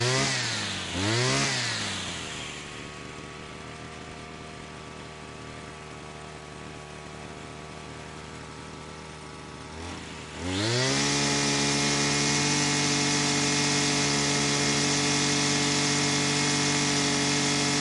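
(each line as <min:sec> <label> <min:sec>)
0:00.0 A chainsaw is being started repeatedly outdoors. 0:03.7
0:03.7 A chainsaw buzzes nearby. 0:10.3
0:10.4 A chainsaw cuts wood loudly outdoors. 0:17.8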